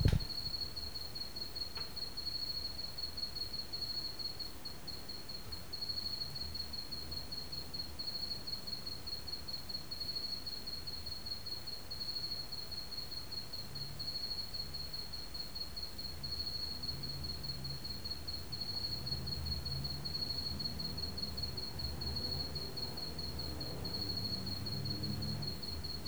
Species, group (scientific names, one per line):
Antaxius kraussii
Orthoptera